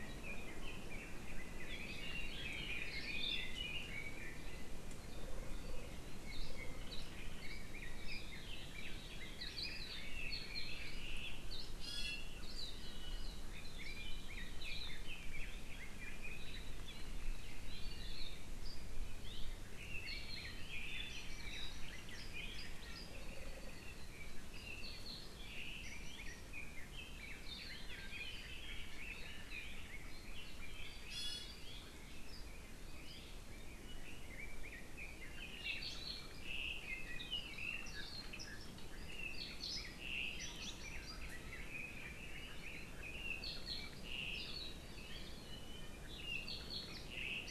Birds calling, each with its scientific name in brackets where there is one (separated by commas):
Hawaii Akepa (Loxops coccineus), Red-billed Leiothrix (Leiothrix lutea), Iiwi (Drepanis coccinea), Hawaiian Goose (Branta sandvicensis)